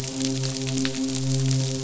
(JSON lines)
{"label": "biophony, midshipman", "recorder": "SoundTrap 500"}